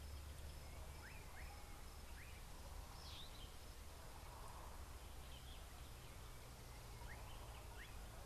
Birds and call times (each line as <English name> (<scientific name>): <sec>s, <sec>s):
Meyer's Parrot (Poicephalus meyeri): 3.2s